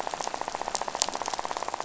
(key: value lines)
label: biophony, rattle
recorder: SoundTrap 500